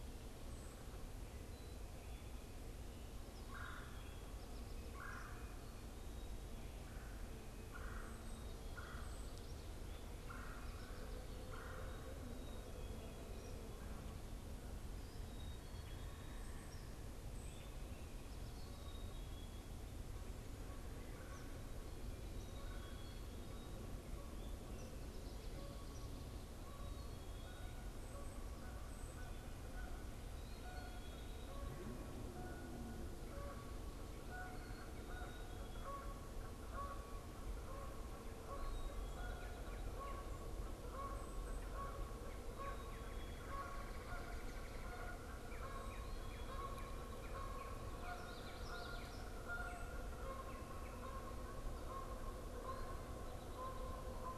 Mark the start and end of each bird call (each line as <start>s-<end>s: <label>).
3.2s-12.1s: Red-bellied Woodpecker (Melanerpes carolinus)
8.1s-9.5s: unidentified bird
16.3s-16.9s: unidentified bird
17.3s-17.8s: unidentified bird
18.7s-19.7s: Black-capped Chickadee (Poecile atricapillus)
22.4s-23.4s: Black-capped Chickadee (Poecile atricapillus)
25.6s-30.2s: Canada Goose (Branta canadensis)
30.5s-54.4s: Canada Goose (Branta canadensis)
48.0s-49.5s: Common Yellowthroat (Geothlypis trichas)